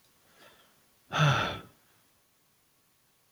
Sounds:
Sigh